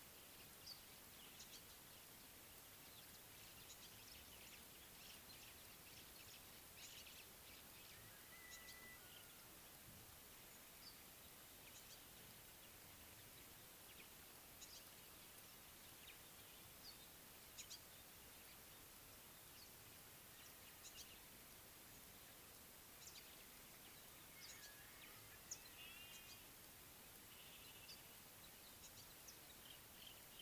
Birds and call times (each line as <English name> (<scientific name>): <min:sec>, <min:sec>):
African Gray Flycatcher (Bradornis microrhynchus): 0:01.5, 0:08.5, 0:14.7, 0:17.6, 0:20.9
Beautiful Sunbird (Cinnyris pulchellus): 0:25.5